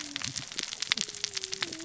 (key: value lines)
label: biophony, cascading saw
recorder: SoundTrap 600 or HydroMoth